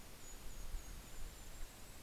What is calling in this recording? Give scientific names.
Regulus satrapa